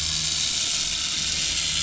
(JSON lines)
{"label": "anthrophony, boat engine", "recorder": "SoundTrap 500"}